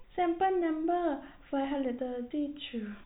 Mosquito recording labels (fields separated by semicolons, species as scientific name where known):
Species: no mosquito; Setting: cup